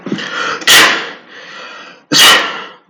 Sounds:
Sneeze